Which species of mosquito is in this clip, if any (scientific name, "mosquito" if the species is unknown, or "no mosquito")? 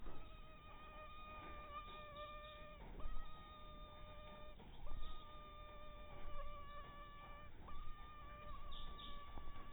mosquito